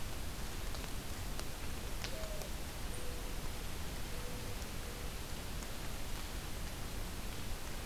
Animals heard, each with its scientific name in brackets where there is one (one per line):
Mourning Dove (Zenaida macroura)